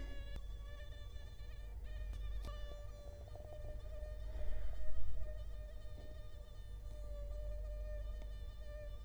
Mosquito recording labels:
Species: Culex quinquefasciatus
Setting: cup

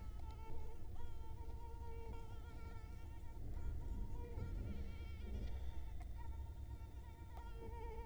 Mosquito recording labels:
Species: Culex quinquefasciatus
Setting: cup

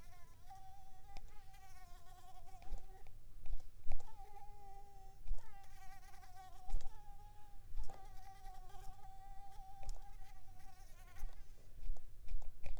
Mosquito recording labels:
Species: Mansonia uniformis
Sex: female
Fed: unfed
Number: one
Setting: cup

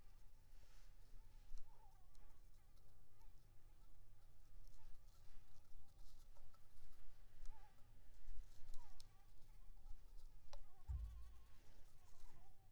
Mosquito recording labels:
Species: Anopheles maculipalpis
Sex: female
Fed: unfed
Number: one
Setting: cup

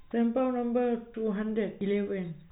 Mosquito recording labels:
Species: no mosquito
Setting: cup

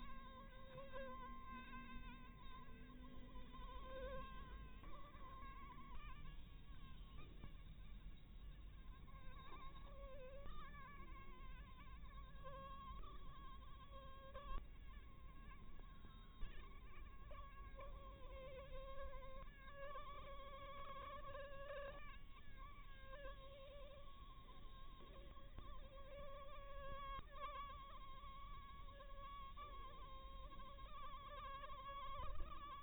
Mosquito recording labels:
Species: Anopheles harrisoni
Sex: female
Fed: blood-fed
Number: one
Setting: cup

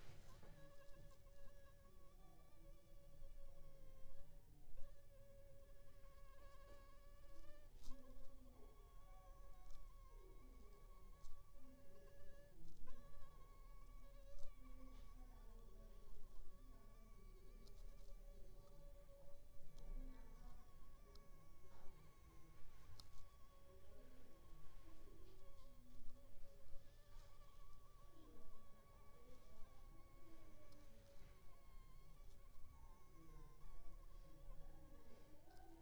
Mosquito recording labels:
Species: Anopheles funestus s.s.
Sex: female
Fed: unfed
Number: one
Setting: cup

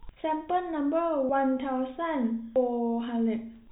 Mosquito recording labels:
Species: no mosquito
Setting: cup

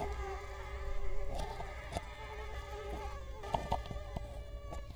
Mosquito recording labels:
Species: Culex quinquefasciatus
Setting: cup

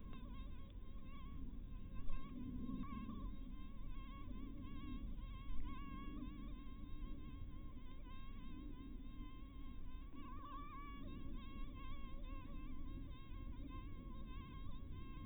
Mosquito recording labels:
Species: Anopheles dirus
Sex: female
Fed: blood-fed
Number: one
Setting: cup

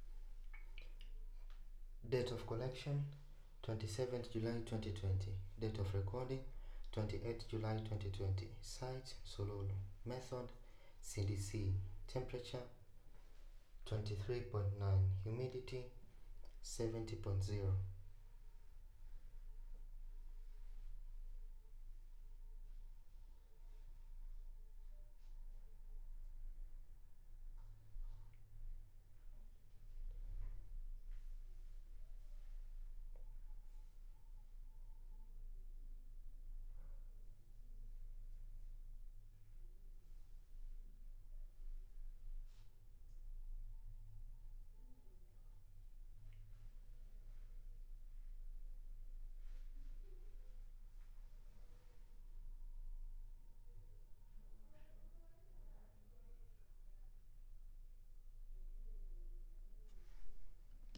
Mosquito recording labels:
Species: no mosquito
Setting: cup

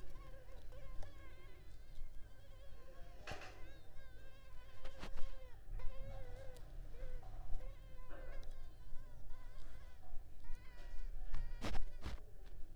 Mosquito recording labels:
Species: Culex pipiens complex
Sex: female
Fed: unfed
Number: one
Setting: cup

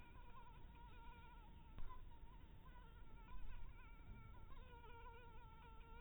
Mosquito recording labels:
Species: Anopheles maculatus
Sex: female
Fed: blood-fed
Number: one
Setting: cup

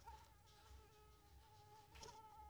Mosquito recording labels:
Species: Anopheles coustani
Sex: female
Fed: unfed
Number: one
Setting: cup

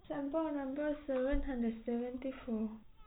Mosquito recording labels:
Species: no mosquito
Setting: cup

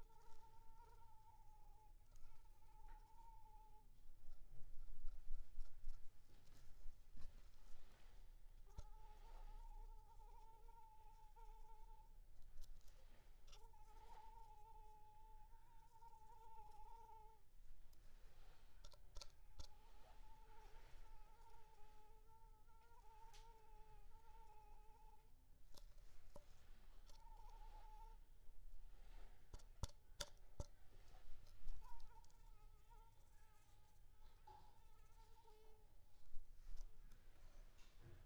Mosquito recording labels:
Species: Anopheles arabiensis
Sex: female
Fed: unfed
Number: one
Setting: cup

